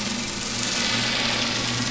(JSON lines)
{"label": "anthrophony, boat engine", "recorder": "SoundTrap 500"}